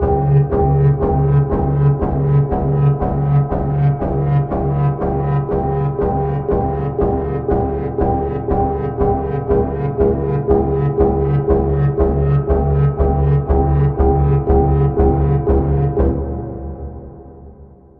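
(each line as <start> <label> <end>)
0.0 Dark, deep metallic hammering sounds repeating steadily at 120 BPM with a dull, muffled quality and an alarming, oppressive character, resonating with subtle roaring reverb and conveying nervous intensity. 16.1
16.1 A dark, deep metallic sound gradually fading in intensity with a dull, muffled, and oppressive quality. 18.0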